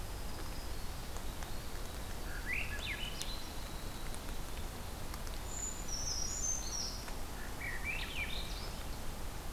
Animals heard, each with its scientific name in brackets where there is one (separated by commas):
Swainson's Thrush (Catharus ustulatus), Winter Wren (Troglodytes hiemalis), Brown Creeper (Certhia americana)